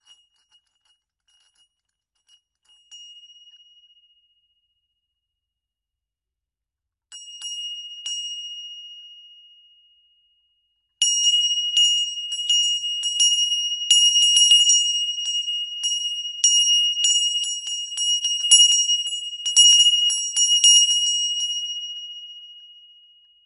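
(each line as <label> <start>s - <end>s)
Soft scratching on a metal surface. 0.0s - 2.9s
An iron bell rings loudly once. 2.9s - 5.1s
An iron bell rings loudly and repeatedly before fading out. 7.0s - 10.8s
An iron bell rings loudly and repeatedly. 11.0s - 23.5s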